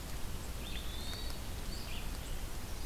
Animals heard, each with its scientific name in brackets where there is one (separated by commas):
Red-eyed Vireo (Vireo olivaceus), Hermit Thrush (Catharus guttatus)